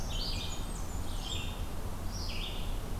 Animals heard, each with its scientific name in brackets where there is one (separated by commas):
Red-eyed Vireo (Vireo olivaceus), Blackburnian Warbler (Setophaga fusca)